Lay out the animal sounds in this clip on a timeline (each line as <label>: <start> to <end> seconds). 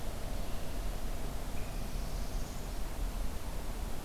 Red-winged Blackbird (Agelaius phoeniceus): 0.3 to 1.0 seconds
Northern Parula (Setophaga americana): 1.6 to 2.9 seconds